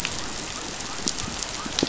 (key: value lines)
label: biophony
recorder: SoundTrap 500